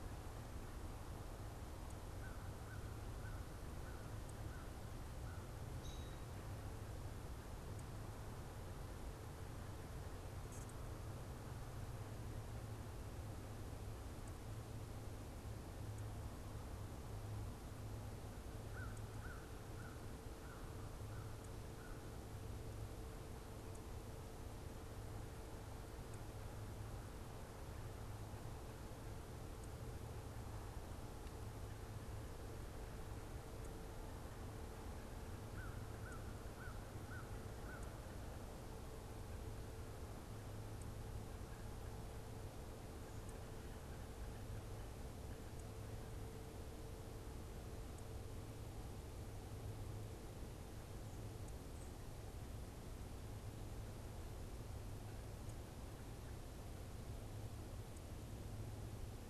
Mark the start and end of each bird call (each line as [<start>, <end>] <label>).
[2.07, 5.57] American Crow (Corvus brachyrhynchos)
[5.67, 6.27] American Robin (Turdus migratorius)
[18.67, 21.47] American Crow (Corvus brachyrhynchos)
[35.37, 38.17] American Crow (Corvus brachyrhynchos)